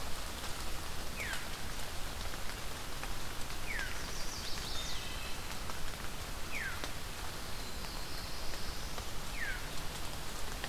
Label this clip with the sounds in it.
Veery, Chestnut-sided Warbler, Wood Thrush, Cedar Waxwing, Black-throated Blue Warbler